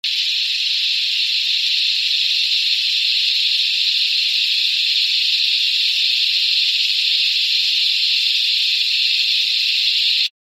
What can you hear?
Henicopsaltria eydouxii, a cicada